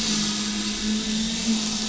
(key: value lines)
label: anthrophony, boat engine
recorder: SoundTrap 500